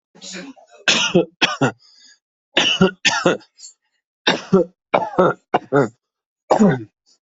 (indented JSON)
{
  "expert_labels": [
    {
      "quality": "ok",
      "cough_type": "dry",
      "dyspnea": false,
      "wheezing": false,
      "stridor": false,
      "choking": false,
      "congestion": false,
      "nothing": true,
      "diagnosis": "upper respiratory tract infection",
      "severity": "mild"
    }
  ],
  "age": 49,
  "gender": "male",
  "respiratory_condition": false,
  "fever_muscle_pain": false,
  "status": "symptomatic"
}